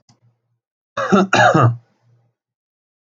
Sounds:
Cough